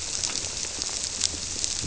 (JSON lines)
{"label": "biophony", "recorder": "SoundTrap 300"}